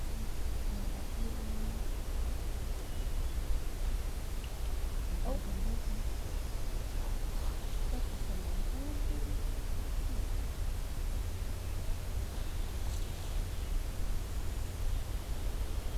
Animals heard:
forest ambience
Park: Acadia National Park